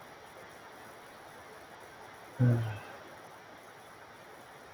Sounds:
Sigh